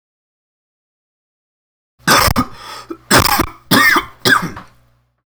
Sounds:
Cough